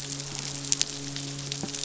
{"label": "biophony, midshipman", "recorder": "SoundTrap 500"}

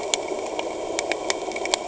{"label": "anthrophony, boat engine", "recorder": "HydroMoth"}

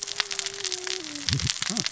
{"label": "biophony, cascading saw", "recorder": "SoundTrap 600 or HydroMoth"}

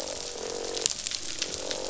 {"label": "biophony, croak", "recorder": "SoundTrap 500"}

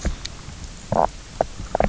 {"label": "biophony, knock croak", "recorder": "SoundTrap 300"}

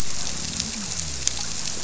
{"label": "biophony", "recorder": "SoundTrap 300"}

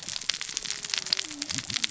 {"label": "biophony, cascading saw", "recorder": "SoundTrap 600 or HydroMoth"}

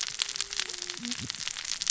{"label": "biophony, cascading saw", "recorder": "SoundTrap 600 or HydroMoth"}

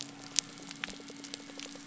{"label": "biophony", "recorder": "SoundTrap 300"}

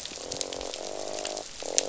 {"label": "biophony, croak", "recorder": "SoundTrap 500"}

